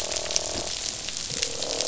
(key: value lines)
label: biophony, croak
recorder: SoundTrap 500